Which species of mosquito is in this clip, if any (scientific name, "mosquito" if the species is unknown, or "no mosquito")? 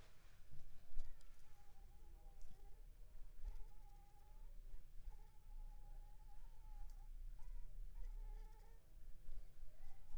Anopheles funestus s.s.